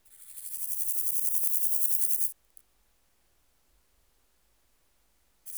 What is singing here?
Chorthippus bornhalmi, an orthopteran